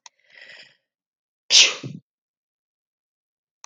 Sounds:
Sneeze